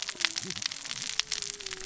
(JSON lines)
{"label": "biophony, cascading saw", "recorder": "SoundTrap 600 or HydroMoth"}